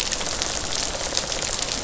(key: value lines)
label: biophony, rattle response
recorder: SoundTrap 500